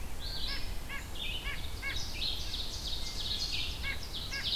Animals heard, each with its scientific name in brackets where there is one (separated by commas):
Ovenbird (Seiurus aurocapilla), White-breasted Nuthatch (Sitta carolinensis), Red-eyed Vireo (Vireo olivaceus)